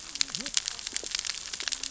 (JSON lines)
{"label": "biophony, cascading saw", "recorder": "SoundTrap 600 or HydroMoth"}